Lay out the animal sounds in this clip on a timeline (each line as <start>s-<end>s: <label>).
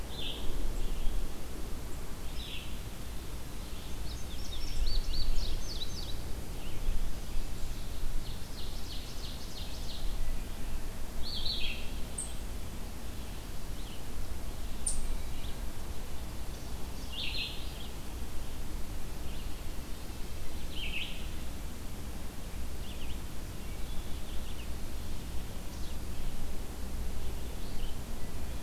0.0s-28.6s: Red-eyed Vireo (Vireo olivaceus)
3.7s-6.2s: Indigo Bunting (Passerina cyanea)
8.0s-10.3s: Ovenbird (Seiurus aurocapilla)
23.4s-24.2s: Wood Thrush (Hylocichla mustelina)